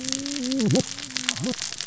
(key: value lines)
label: biophony, cascading saw
recorder: SoundTrap 600 or HydroMoth